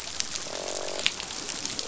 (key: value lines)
label: biophony, croak
recorder: SoundTrap 500